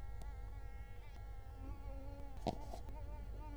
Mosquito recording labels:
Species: Culex quinquefasciatus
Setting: cup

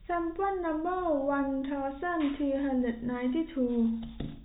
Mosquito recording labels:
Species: no mosquito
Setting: cup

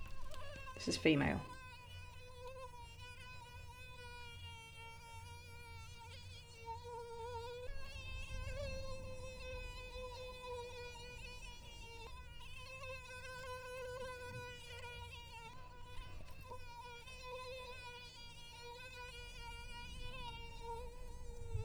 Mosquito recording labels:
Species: Toxorhynchites brevipalpis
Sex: female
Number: one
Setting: cup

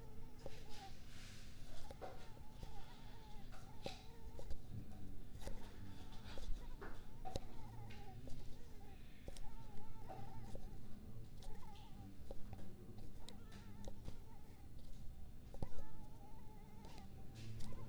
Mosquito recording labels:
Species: Culex pipiens complex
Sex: female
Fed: unfed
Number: one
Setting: cup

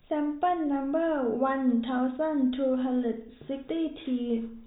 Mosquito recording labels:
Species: no mosquito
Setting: cup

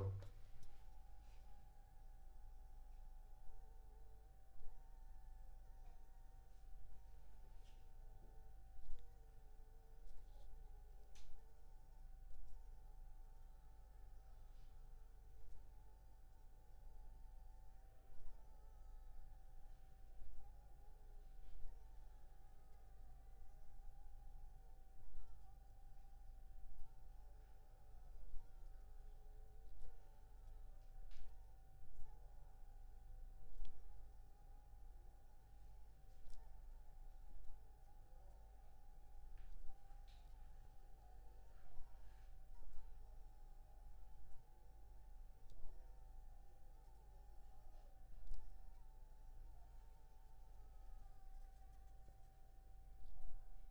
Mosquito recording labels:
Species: Anopheles funestus s.s.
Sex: female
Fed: unfed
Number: one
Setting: cup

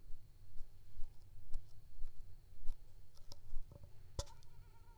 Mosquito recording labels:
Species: Anopheles squamosus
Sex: female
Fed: unfed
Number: one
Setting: cup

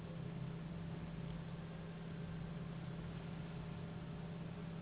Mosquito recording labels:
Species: Anopheles gambiae s.s.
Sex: female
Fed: unfed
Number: one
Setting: insect culture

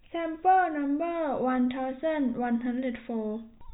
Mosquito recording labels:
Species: no mosquito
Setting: cup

